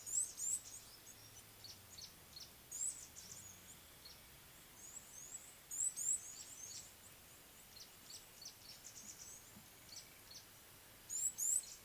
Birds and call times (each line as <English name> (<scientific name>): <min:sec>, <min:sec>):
Red-cheeked Cordonbleu (Uraeginthus bengalus): 0:02.9, 0:06.1, 0:11.2
Gray-backed Camaroptera (Camaroptera brevicaudata): 0:08.2